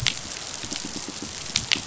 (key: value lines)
label: biophony, pulse
recorder: SoundTrap 500